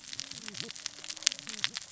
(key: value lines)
label: biophony, cascading saw
recorder: SoundTrap 600 or HydroMoth